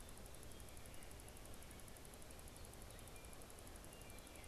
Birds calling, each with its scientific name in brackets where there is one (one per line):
Baltimore Oriole (Icterus galbula)